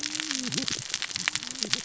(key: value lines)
label: biophony, cascading saw
recorder: SoundTrap 600 or HydroMoth